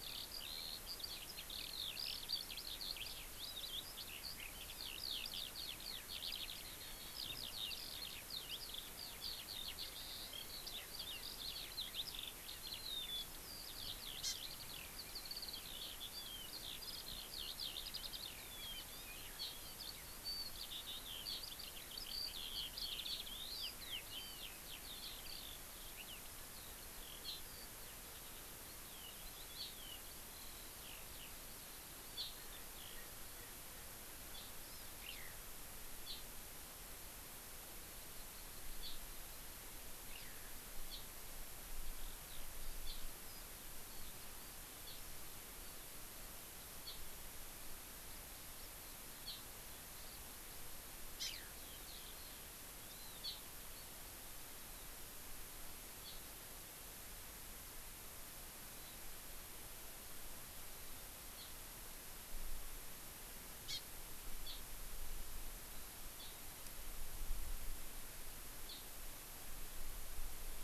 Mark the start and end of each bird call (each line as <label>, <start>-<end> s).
Eurasian Skylark (Alauda arvensis), 0.0-33.6 s
Hawaii Amakihi (Chlorodrepanis virens), 14.3-14.4 s
Hawaii Amakihi (Chlorodrepanis virens), 34.4-35.0 s
Eurasian Skylark (Alauda arvensis), 35.1-35.4 s
Hawaii Amakihi (Chlorodrepanis virens), 36.1-36.3 s
Hawaii Amakihi (Chlorodrepanis virens), 38.9-39.0 s
Eurasian Skylark (Alauda arvensis), 40.2-40.5 s
Hawaii Amakihi (Chlorodrepanis virens), 40.9-41.1 s
Eurasian Skylark (Alauda arvensis), 42.3-42.5 s
Hawaii Amakihi (Chlorodrepanis virens), 42.9-43.0 s
Hawaii Amakihi (Chlorodrepanis virens), 44.9-45.0 s
Hawaii Amakihi (Chlorodrepanis virens), 46.9-47.0 s
Hawaii Amakihi (Chlorodrepanis virens), 49.3-49.5 s
Hawaii Amakihi (Chlorodrepanis virens), 51.2-51.4 s
Eurasian Skylark (Alauda arvensis), 51.2-52.3 s
Hawaii Amakihi (Chlorodrepanis virens), 52.9-53.4 s
Hawaii Amakihi (Chlorodrepanis virens), 56.1-56.2 s
Hawaii Amakihi (Chlorodrepanis virens), 61.4-61.5 s
Hawaii Amakihi (Chlorodrepanis virens), 63.7-63.9 s
Hawaii Amakihi (Chlorodrepanis virens), 64.5-64.6 s
Hawaii Amakihi (Chlorodrepanis virens), 66.2-66.5 s
Hawaii Amakihi (Chlorodrepanis virens), 68.7-68.9 s